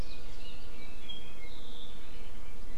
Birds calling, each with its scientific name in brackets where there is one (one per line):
Apapane (Himatione sanguinea)